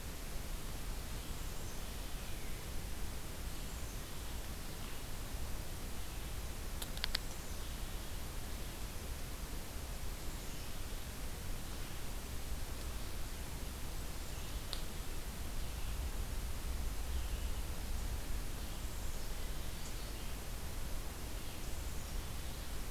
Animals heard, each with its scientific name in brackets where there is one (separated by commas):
Black-capped Chickadee (Poecile atricapillus), Red-eyed Vireo (Vireo olivaceus)